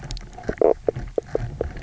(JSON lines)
{"label": "biophony, knock croak", "recorder": "SoundTrap 300"}